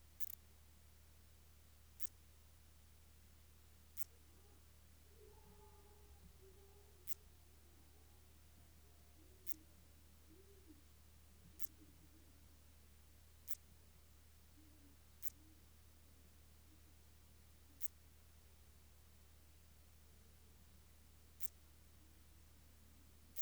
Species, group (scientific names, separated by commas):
Phaneroptera nana, Orthoptera